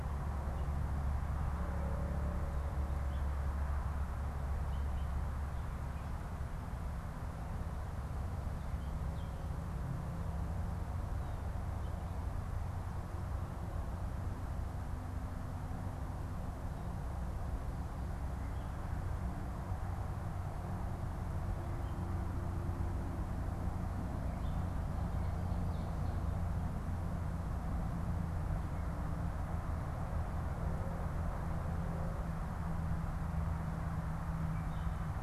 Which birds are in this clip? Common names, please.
Gray Catbird